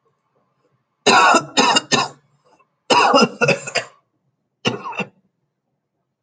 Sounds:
Cough